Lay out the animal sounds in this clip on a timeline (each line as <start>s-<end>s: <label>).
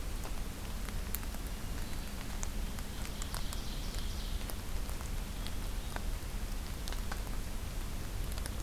1.3s-2.3s: Hermit Thrush (Catharus guttatus)
2.6s-4.6s: Ovenbird (Seiurus aurocapilla)
5.3s-6.1s: Hermit Thrush (Catharus guttatus)